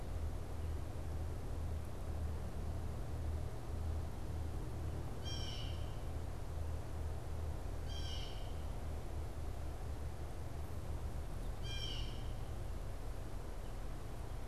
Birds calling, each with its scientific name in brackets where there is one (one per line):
Blue Jay (Cyanocitta cristata)